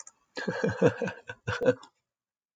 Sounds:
Laughter